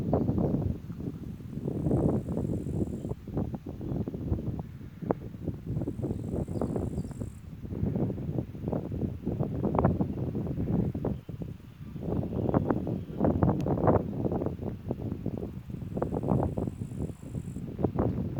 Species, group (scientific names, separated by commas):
Tettigonia cantans, Orthoptera